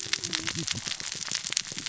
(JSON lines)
{"label": "biophony, cascading saw", "recorder": "SoundTrap 600 or HydroMoth"}